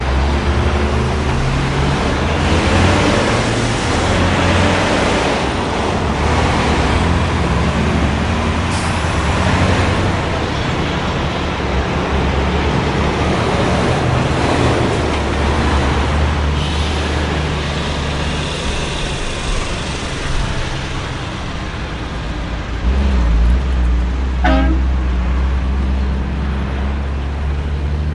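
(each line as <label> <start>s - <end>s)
A continuous layered noise of traffic with a constant hum of engines, car braking sounds, and background noise. 0.0s - 24.4s
An abrupt, singular honking sound with background noise. 24.4s - 25.0s
A continuous layered noise of traffic with a constant hum of engines, car braking sounds, and background noise. 25.0s - 28.1s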